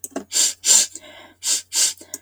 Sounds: Sniff